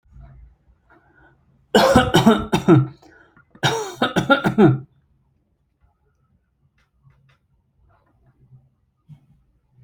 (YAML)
expert_labels:
- quality: good
  cough_type: dry
  dyspnea: false
  wheezing: false
  stridor: false
  choking: false
  congestion: false
  nothing: true
  diagnosis: upper respiratory tract infection
  severity: mild
age: 27
gender: male
respiratory_condition: false
fever_muscle_pain: false
status: healthy